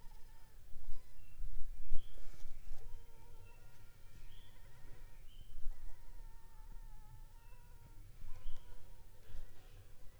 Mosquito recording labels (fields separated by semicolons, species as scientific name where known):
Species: Anopheles funestus s.s.; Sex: female; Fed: unfed; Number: one; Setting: cup